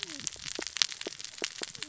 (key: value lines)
label: biophony, cascading saw
recorder: SoundTrap 600 or HydroMoth